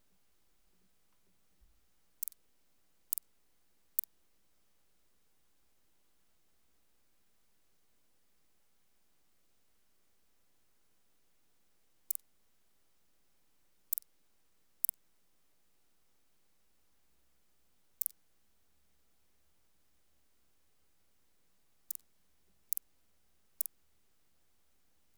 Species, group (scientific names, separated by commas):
Tylopsis lilifolia, Orthoptera